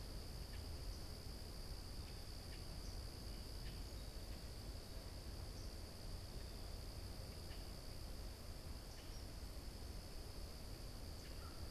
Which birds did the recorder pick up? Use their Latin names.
Quiscalus quiscula, Corvus brachyrhynchos